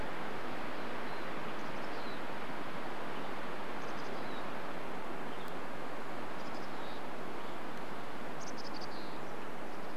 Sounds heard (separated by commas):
Mountain Chickadee call, Western Tanager call